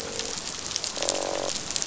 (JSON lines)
{"label": "biophony, croak", "recorder": "SoundTrap 500"}